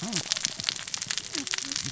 {"label": "biophony, cascading saw", "recorder": "SoundTrap 600 or HydroMoth"}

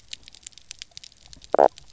{"label": "biophony, knock croak", "recorder": "SoundTrap 300"}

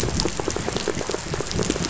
{"label": "biophony, pulse", "recorder": "SoundTrap 500"}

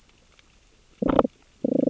{"label": "biophony, damselfish", "recorder": "SoundTrap 600 or HydroMoth"}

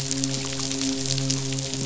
{"label": "biophony, midshipman", "recorder": "SoundTrap 500"}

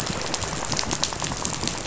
{"label": "biophony, rattle", "recorder": "SoundTrap 500"}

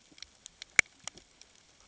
{"label": "ambient", "recorder": "HydroMoth"}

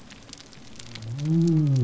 {"label": "biophony", "recorder": "SoundTrap 300"}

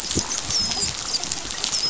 {"label": "biophony, dolphin", "recorder": "SoundTrap 500"}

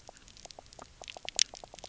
{"label": "biophony, knock croak", "recorder": "SoundTrap 300"}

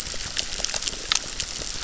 {"label": "biophony, crackle", "recorder": "SoundTrap 600"}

